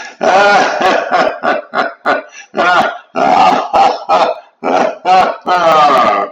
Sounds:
Laughter